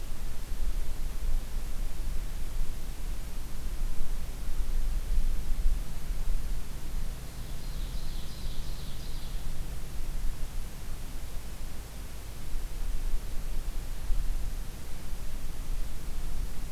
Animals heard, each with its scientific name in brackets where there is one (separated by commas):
Ovenbird (Seiurus aurocapilla)